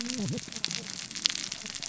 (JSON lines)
{"label": "biophony, cascading saw", "recorder": "SoundTrap 600 or HydroMoth"}